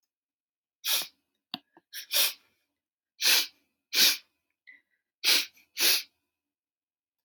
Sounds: Sniff